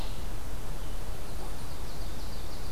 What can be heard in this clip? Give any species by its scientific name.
Seiurus aurocapilla